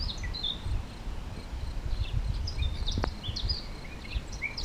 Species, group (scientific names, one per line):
Gryllus campestris
Orthoptera